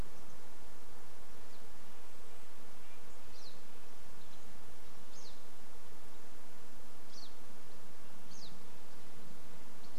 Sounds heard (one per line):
Red-breasted Nuthatch song
Chestnut-backed Chickadee call
insect buzz
Pine Siskin call